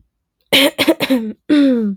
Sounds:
Throat clearing